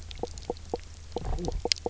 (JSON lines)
{"label": "biophony, knock croak", "recorder": "SoundTrap 300"}